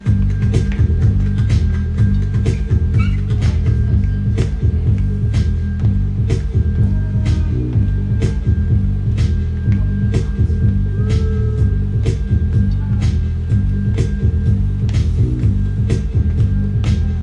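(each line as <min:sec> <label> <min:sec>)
0:00.0 Soft music plays over a looped beat. 0:17.2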